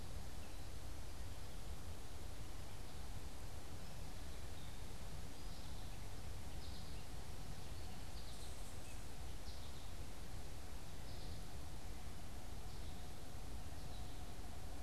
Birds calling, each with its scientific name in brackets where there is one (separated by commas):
unidentified bird, American Goldfinch (Spinus tristis)